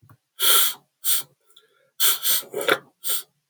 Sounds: Sniff